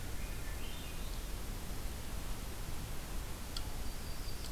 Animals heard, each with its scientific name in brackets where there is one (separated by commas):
Yellow-rumped Warbler (Setophaga coronata), Swainson's Thrush (Catharus ustulatus)